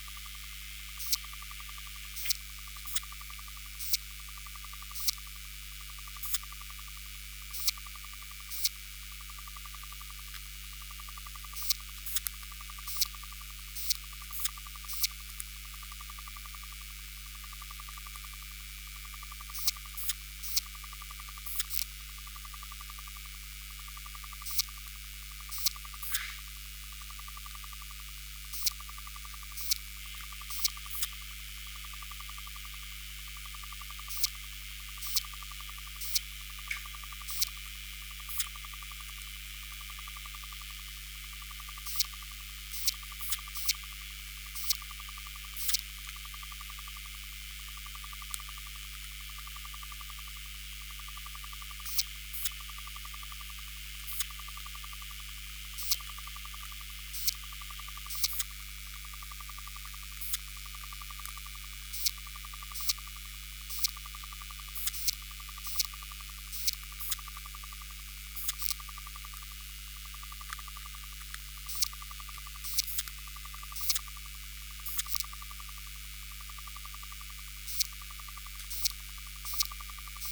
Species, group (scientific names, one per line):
Poecilimon elegans
Orthoptera